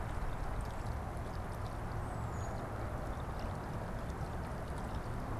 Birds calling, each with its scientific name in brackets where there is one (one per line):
unidentified bird